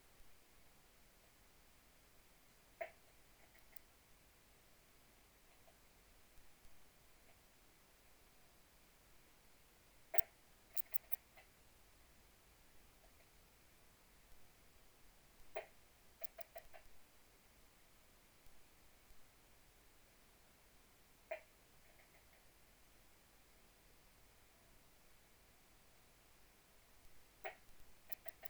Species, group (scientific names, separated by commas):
Poecilimon antalyaensis, Orthoptera